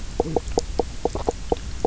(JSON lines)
{"label": "biophony, knock croak", "recorder": "SoundTrap 300"}